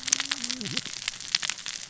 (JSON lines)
{"label": "biophony, cascading saw", "recorder": "SoundTrap 600 or HydroMoth"}